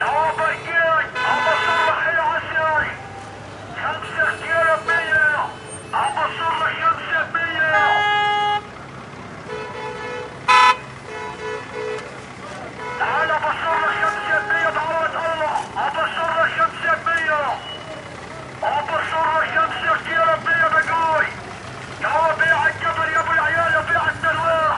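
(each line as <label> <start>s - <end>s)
A few cars honk loudly in the distance. 0.0s - 2.9s
A merchant is loudly advertising products outdoors. 0.0s - 8.6s
The car engine is running muffled. 0.0s - 24.8s
A few cars honk loudly in the distance. 3.9s - 16.6s
A merchant is loudly advertising products outdoors. 12.8s - 24.6s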